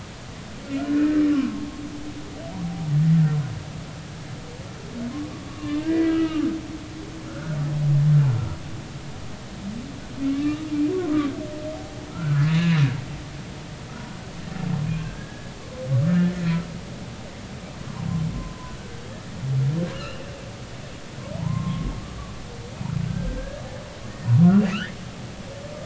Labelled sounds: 0.8	1.1	humpback whale, 1.3 to 1.5 kHz
5.5	7.6	humpback whale, 1.0 to 3.0 kHz
10.3	10.6	humpback whale, 1.1 to 2.5 kHz
12.1	12.8	humpback whale, 1.2 to 6.9 kHz
15.0	16.3	humpback whale, 1.5 to 1.8 kHz
18.3	18.8	humpback whale, 0.96 to 1.1 kHz
19.9	20.2	humpback whale, 2.6 to 3.0 kHz
21.4	21.9	humpback whale, 0.80 to 1.1 kHz
23.1	23.6	humpback whale, 1.5 to 1.7 kHz
24.7	25.0	humpback whale, 1.2 to 2.0 kHz

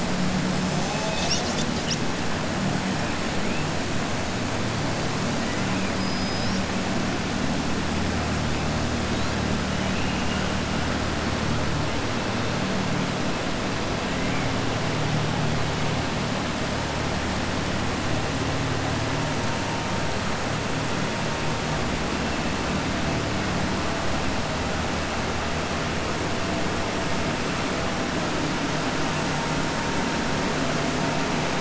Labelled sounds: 5.9	6.6	killer whale, southern resident, 3.9 to 6.2 kHz
9.8	10.5	killer whale, southern resident, 2.3 to 3.0 kHz

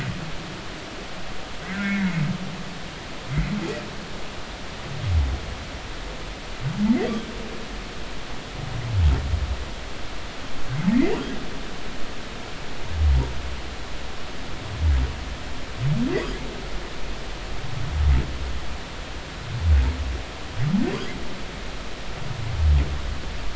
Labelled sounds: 1.6	2.1	humpback whale, 1.3 to 2.3 kHz
10.9	11.1	humpback whale, 1.8 to 2.2 kHz

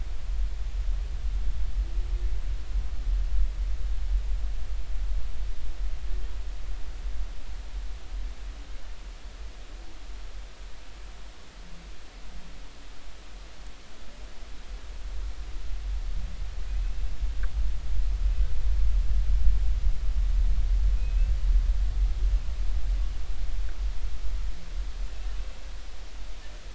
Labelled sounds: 16.7	17.0	humpback whale, 2.4 to 2.7 kHz
21.0	21.3	humpback whale, 2.4 to 2.7 kHz

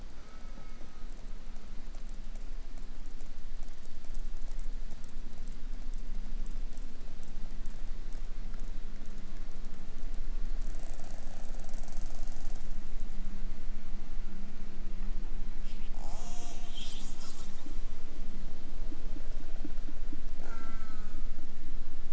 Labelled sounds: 0.2	1.2	killer whale, southern resident, J pod, call S04, 0.67 to 6.3 kHz
15.9	17.7	killer whale, southern resident, call S10, 0.11 to 8.0 kHz
20.4	21.4	killer whale, southern resident, J pod, call S04, 0.32 to 8.0 kHz

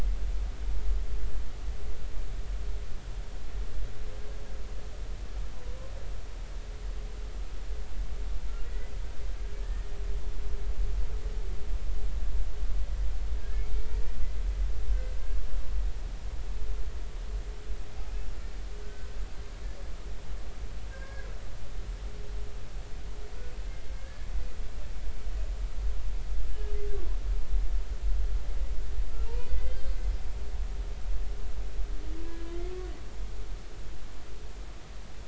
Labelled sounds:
8.6	9.9	humpback whale, 1.6 to 2.1 kHz
18.8	19.1	humpback whale, 1.4 to 1.6 kHz
20.9	21.4	humpback whale, 1.2 to 2.2 kHz
29.2	29.9	humpback whale, 0.86 to 2.1 kHz
32.2	32.9	humpback whale, 1.1 to 1.7 kHz

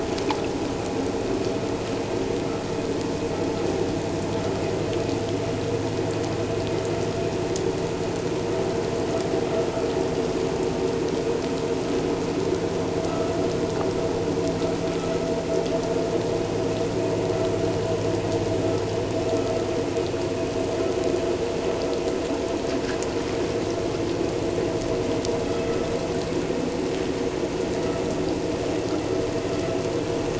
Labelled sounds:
25.4	25.7	vessel noise, 3.2 to 3.4 kHz

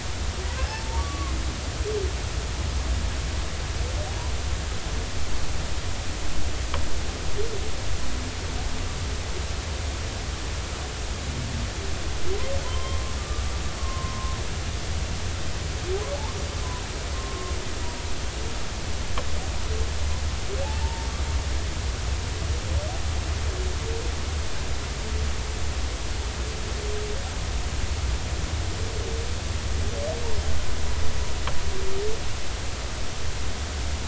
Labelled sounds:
0.7	1.3	humpback whale, 0.80 to 1.2 kHz
12.6	13.4	humpback whale, 0.96 to 3.2 kHz
13.8	14.4	humpback whale, 0.96 to 1.2 kHz
17.1	17.5	humpback whale, 1.0 to 1.1 kHz
20.8	21.1	humpback whale, 0.83 to 0.96 kHz

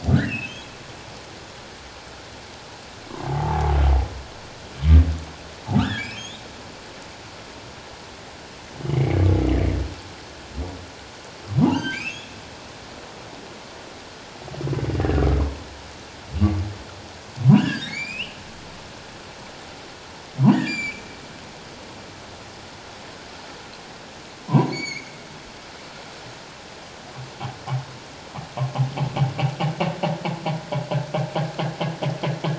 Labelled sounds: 0.1	0.7	humpback whale, 1.4 to 3.4 kHz
3.3	3.8	humpback whale, 0.78 to 0.97 kHz
5.8	6.4	humpback whale, 1.1 to 7.0 kHz
8.9	9.3	humpback whale, 2.0 to 2.4 kHz
11.6	12.3	humpback whale, 0.81 to 5.3 kHz
14.9	15.2	humpback whale, 1.6 to 1.9 kHz
17.5	18.4	humpback whale, 1.4 to 7.8 kHz
20.5	21.0	humpback whale, 1.6 to 7.2 kHz
24.5	25.1	humpback whale, 0.91 to 6.9 kHz

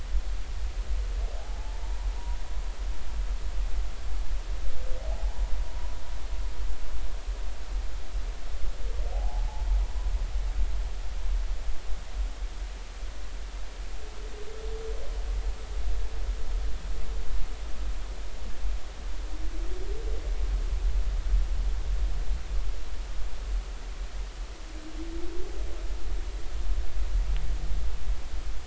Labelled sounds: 1.4	2.1	humpback whale, 0.80 to 1.1 kHz
5.1	5.4	humpback whale, 0.80 to 0.90 kHz
9.1	9.5	humpback whale, 0.80 to 0.93 kHz

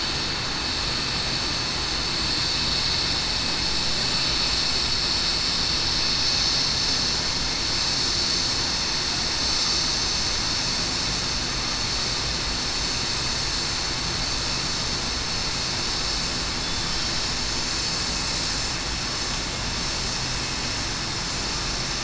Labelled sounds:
1.4	1.7	vessel noise, 6.2 to 6.3 kHz
4.4	4.8	vessel noise, 6.2 to 6.3 kHz
16.5	16.9	killer whale, southern resident, 3.4 to 3.5 kHz
18.8	19.3	vessel noise, 6.16 to 6.23 kHz

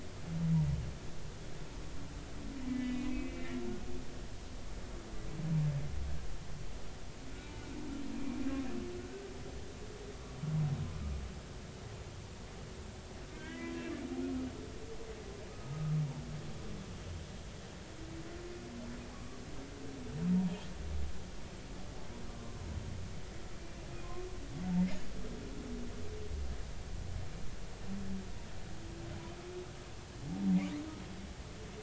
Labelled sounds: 2.7	4.1	humpback whale, 1.8 to 3.8 kHz
13.4	13.8	humpback whale, 1.9 to 2.1 kHz
15.5	16.0	humpback whale, 1.2 to 1.3 kHz
19.1	19.4	humpback whale, 1.1 to 1.3 kHz
20.3	20.6	humpback whale, 0.90 to 0.99 kHz
22.3	22.6	humpback whale, 0.99 to 1.2 kHz

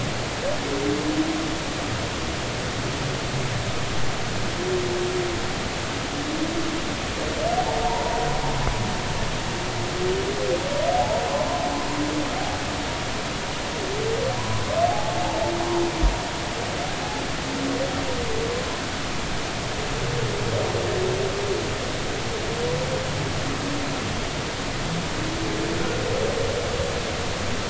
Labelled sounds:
7.8	8.2	humpback whale, 0.86 to 1.1 kHz
10.9	11.2	humpback whale, 0.80 to 0.96 kHz
14.9	15.1	humpback whale, 0.80 to 0.93 kHz

